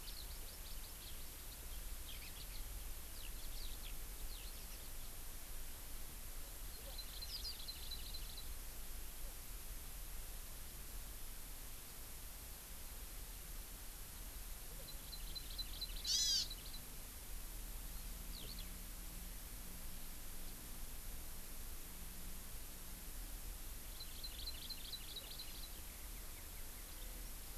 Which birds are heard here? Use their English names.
Eurasian Skylark, Hawaii Amakihi